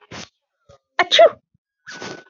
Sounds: Sneeze